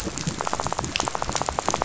{"label": "biophony, rattle", "recorder": "SoundTrap 500"}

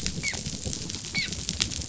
{"label": "biophony, dolphin", "recorder": "SoundTrap 500"}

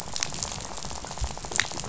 {"label": "biophony, rattle", "recorder": "SoundTrap 500"}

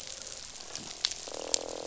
{"label": "biophony, croak", "recorder": "SoundTrap 500"}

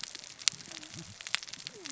{"label": "biophony, cascading saw", "recorder": "SoundTrap 600 or HydroMoth"}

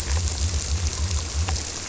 {"label": "biophony", "recorder": "SoundTrap 300"}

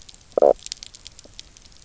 {"label": "biophony, knock croak", "recorder": "SoundTrap 300"}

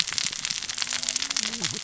{"label": "biophony, cascading saw", "recorder": "SoundTrap 600 or HydroMoth"}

